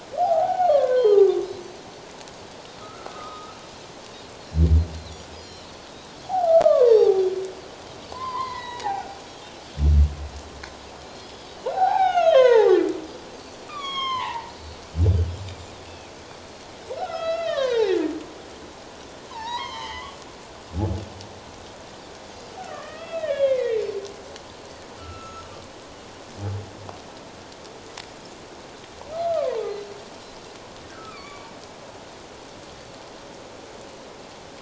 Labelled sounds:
0.2	1.5	humpback whale, 0.78 to 1.8 kHz
2.8	3.6	humpback whale, 1.2 to 1.4 kHz
5.3	5.9	Pacific white-sided dolphin, 2.9 to 5.8 kHz
6.2	7.2	humpback whale, 0.78 to 4.8 kHz
8.1	8.9	humpback whale, 0.88 to 4.9 kHz
8.9	9.7	Pacific white-sided dolphin, 1.4 to 3.4 kHz
11.2	11.5	Pacific white-sided dolphin, 3.2 to 3.5 kHz
11.7	12.9	humpback whale, 0.78 to 6.7 kHz
13.3	13.6	Pacific white-sided dolphin, 4.4 to 4.8 kHz
13.7	14.5	humpback whale, 0.81 to 6.9 kHz
14.5	14.8	Pacific white-sided dolphin, 4.2 to 4.5 kHz
15.9	16.1	Pacific white-sided dolphin, 2.4 to 2.8 kHz
17.0	17.9	humpback whale, 0.78 to 4.8 kHz
19.3	20.2	humpback whale, 0.81 to 6.5 kHz
22.6	23.8	humpback whale, 1.1 to 3.5 kHz
25.0	25.5	humpback whale, 1.2 to 6.7 kHz
29.1	29.7	humpback whale, 0.78 to 1.4 kHz
30.9	31.5	humpback whale, 1.1 to 4.8 kHz

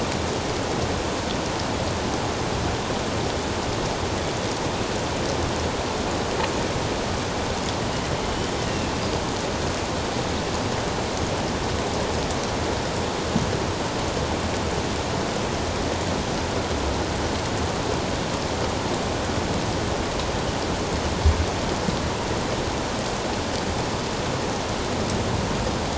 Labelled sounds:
8.7	8.9	killer whale, northern resident, A clan, AB subclan, 2.6 to 2.9 kHz

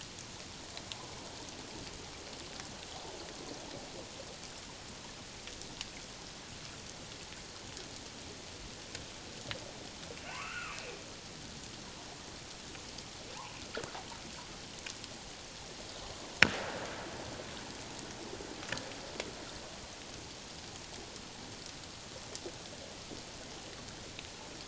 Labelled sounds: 10.2	10.8	humpback whale, 0.88 to 2.9 kHz

